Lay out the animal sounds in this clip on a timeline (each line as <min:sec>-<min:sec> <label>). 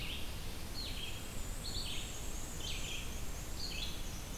0:00.0-0:04.4 Red-eyed Vireo (Vireo olivaceus)
0:00.6-0:04.4 Black-and-white Warbler (Mniotilta varia)